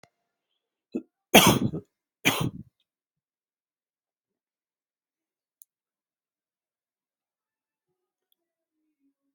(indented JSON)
{
  "expert_labels": [
    {
      "quality": "good",
      "cough_type": "dry",
      "dyspnea": false,
      "wheezing": false,
      "stridor": false,
      "choking": false,
      "congestion": false,
      "nothing": true,
      "diagnosis": "lower respiratory tract infection",
      "severity": "mild"
    }
  ],
  "age": 25,
  "gender": "male",
  "respiratory_condition": false,
  "fever_muscle_pain": true,
  "status": "symptomatic"
}